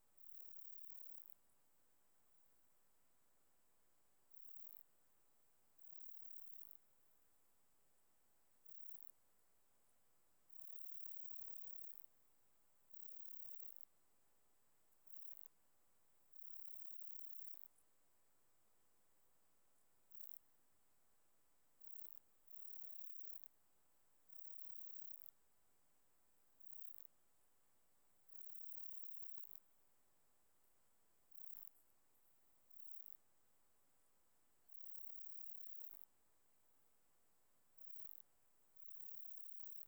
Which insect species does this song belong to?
Platycleis iberica